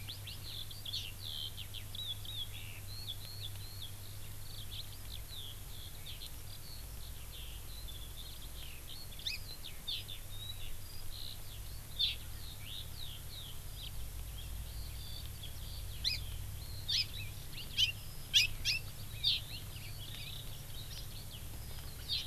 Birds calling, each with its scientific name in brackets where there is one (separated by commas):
Hawaii Amakihi (Chlorodrepanis virens), Eurasian Skylark (Alauda arvensis)